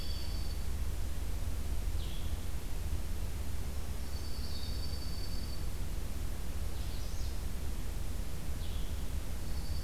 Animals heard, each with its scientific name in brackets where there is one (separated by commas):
Dark-eyed Junco (Junco hyemalis), Blue-headed Vireo (Vireo solitarius), Magnolia Warbler (Setophaga magnolia)